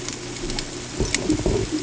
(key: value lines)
label: ambient
recorder: HydroMoth